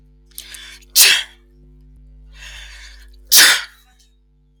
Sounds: Sneeze